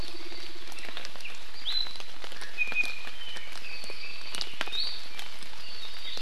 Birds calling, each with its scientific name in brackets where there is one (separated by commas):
Iiwi (Drepanis coccinea), Apapane (Himatione sanguinea)